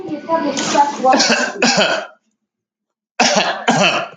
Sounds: Cough